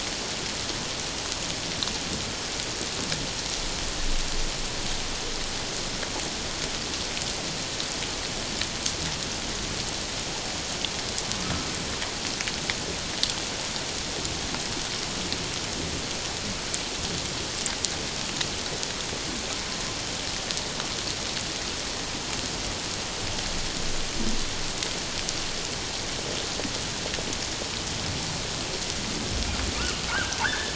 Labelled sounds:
30.1	30.7	humpback whale, 1.2 to 1.8 kHz

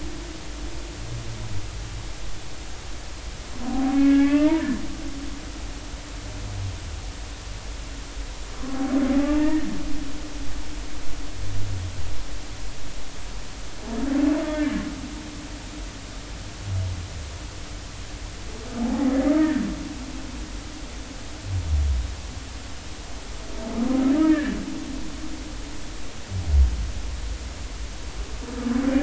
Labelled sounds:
3.6	4.6	humpback whale, 0.80 to 2.8 kHz
9.1	9.7	humpback whale, 0.80 to 2.0 kHz
14.5	14.8	humpback whale, 1.7 to 2.2 kHz
18.8	19.1	humpback whale, 0.80 to 0.90 kHz
24.2	24.6	humpback whale, 1.6 to 1.9 kHz

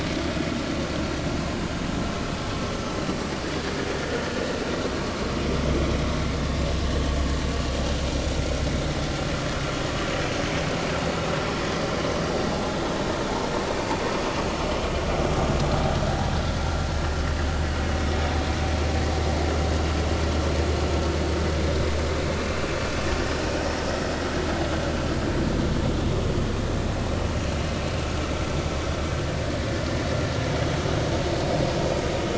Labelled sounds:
22.4	22.6	vessel noise, 2.6 to 2.8 kHz

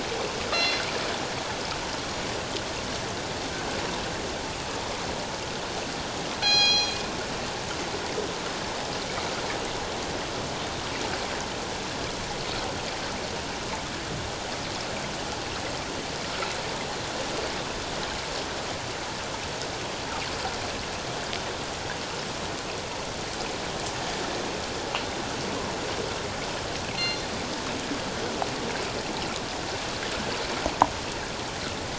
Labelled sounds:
0.5	0.8	killer whale, northern resident, G clan, 2.0 to 6.2 kHz
6.4	7.0	killer whale, northern resident, G clan, 0.78 to 6.6 kHz
27.0	27.2	killer whale, northern resident, G clan, 4.1 to 4.3 kHz

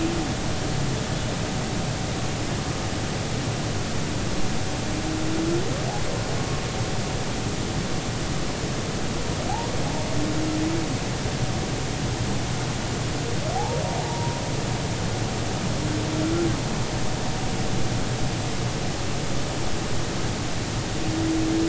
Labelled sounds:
13.6	14.4	humpback whale, 0.80 to 1.0 kHz

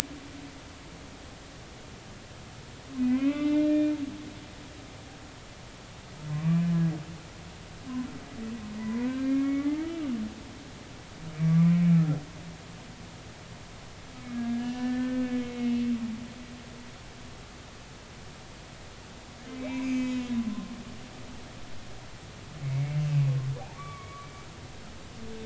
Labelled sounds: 3.0	3.9	humpback whale, 0.96 to 3.6 kHz
6.3	6.6	humpback whale, 0.99 to 2.5 kHz
8.7	10.0	humpback whale, 0.93 to 2.5 kHz
11.4	11.8	humpback whale, 1.1 to 2.3 kHz
14.3	15.8	humpback whale, 1.5 to 3.0 kHz
19.6	20.4	humpback whale, 2.0 to 6.4 kHz
22.6	23.3	humpback whale, 2.0 to 2.7 kHz
23.7	24.3	humpback whale, 1.1 to 2.4 kHz

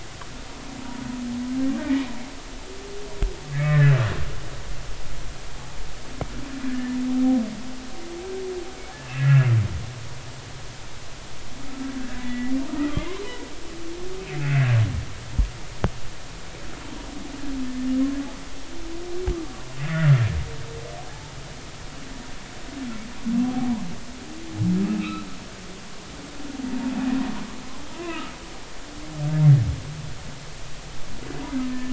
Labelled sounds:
1.8	2.0	humpback whale, 1.8 to 2.0 kHz
3.5	3.9	humpback whale, 1.6 to 2.4 kHz
6.7	7.0	humpback whale, 1.6 to 1.8 kHz
9.0	9.5	humpback whale, 1.6 to 2.8 kHz
12.2	13.2	humpback whale, 1.2 to 2.2 kHz
24.8	25.3	humpback whale, 1.2 to 4.1 kHz
28.1	28.3	humpback whale, 1.2 to 1.3 kHz
31.6	31.9	humpback whale, 1.7 to 1.8 kHz

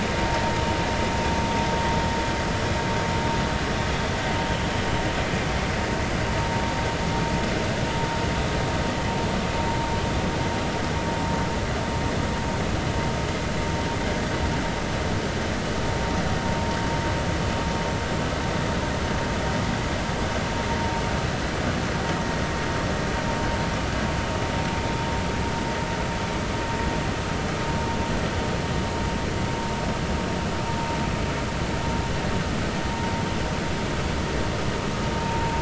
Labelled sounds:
35.2	35.5	vessel noise, 0.86 to 0.96 kHz

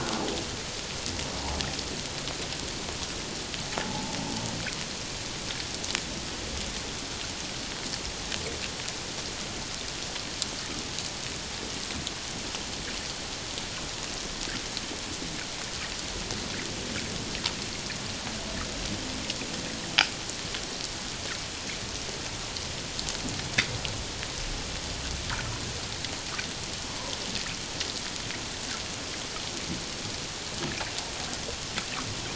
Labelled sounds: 3.8	4.2	humpback whale, 0.78 to 0.94 kHz

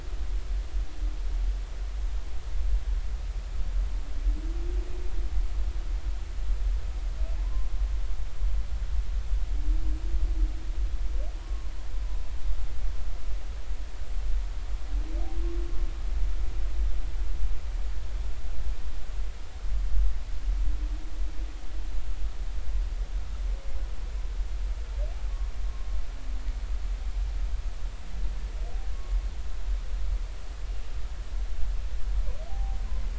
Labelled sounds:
11.4	11.7	humpback whale, 0.99 to 1.1 kHz
32.5	32.8	humpback whale, 0.80 to 0.86 kHz

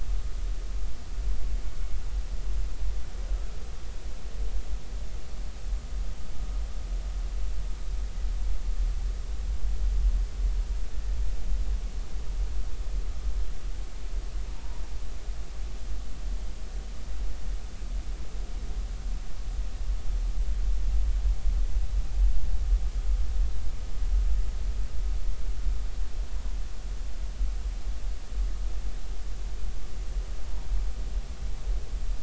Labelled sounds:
14.5	14.8	humpback whale, 0.86 to 1.1 kHz

